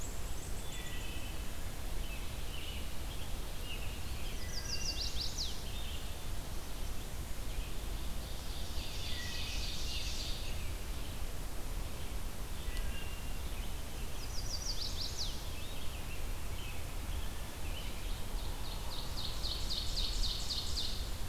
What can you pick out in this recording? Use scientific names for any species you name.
Hylocichla mustelina, Turdus migratorius, Setophaga pensylvanica, Seiurus aurocapilla